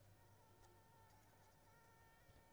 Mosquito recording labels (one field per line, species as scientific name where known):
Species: Anopheles squamosus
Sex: female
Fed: unfed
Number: one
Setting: cup